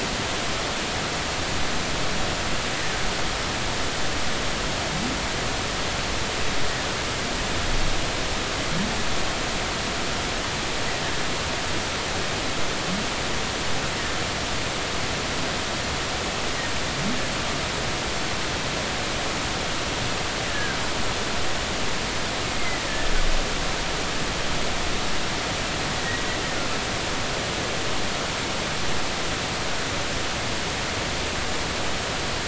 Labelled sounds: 20.5	20.8	humpback whale, 1.5 to 1.8 kHz
22.6	23.1	humpback whale, 1.7 to 2.2 kHz

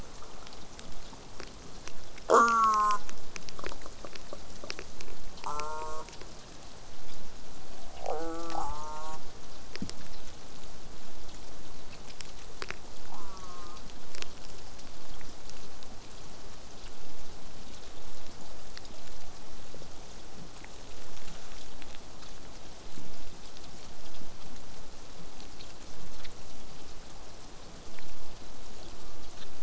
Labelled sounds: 2.3	3.0	killer whale, southern resident, J pod, call S04, 0.12 to 8.0 kHz
5.4	6.1	killer whale, southern resident, J pod, call S04, 0.19 to 8.0 kHz
8.0	9.2	killer whale, southern resident, J pod, call S04, 0.15 to 8.0 kHz
13.1	13.8	killer whale, southern resident, J pod, call S04, 0.46 to 1.6 kHz

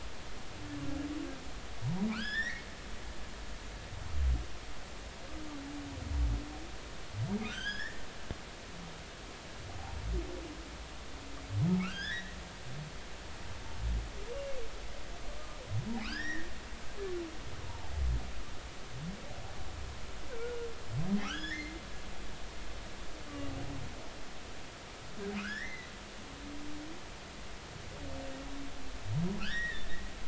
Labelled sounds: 1.8	2.7	humpback whale, 0.86 to 5.7 kHz
7.5	8.1	humpback whale, 1.4 to 5.5 kHz
11.8	12.4	humpback whale, 1.1 to 3.9 kHz
16.0	16.5	humpback whale, 1.0 to 3.9 kHz
21.2	21.8	humpback whale, 1.2 to 5.5 kHz
25.4	25.9	humpback whale, 1.2 to 4.2 kHz
29.4	29.9	humpback whale, 1.3 to 3.8 kHz

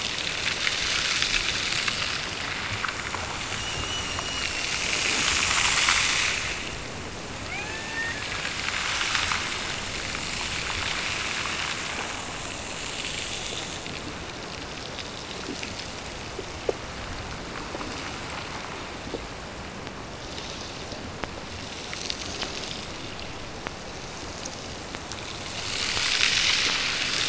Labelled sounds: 7.4	8.6	killer whale, Bigg's (transient), Gulf of Alaska transient, 0.41 to 2.9 kHz

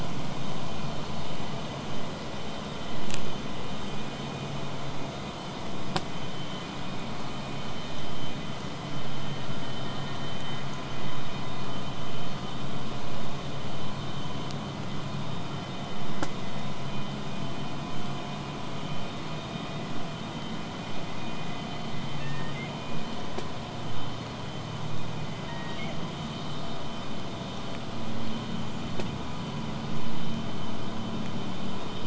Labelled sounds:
12.9	17.9	vessel noise, 0 to 8.0 kHz
22.2	22.7	killer whale, southern resident, 1.6 to 2.3 kHz
25.4	25.9	killer whale, southern resident, 1.6 to 2.5 kHz

